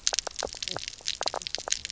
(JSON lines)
{"label": "biophony, knock croak", "recorder": "SoundTrap 300"}